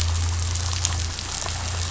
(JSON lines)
{"label": "anthrophony, boat engine", "recorder": "SoundTrap 500"}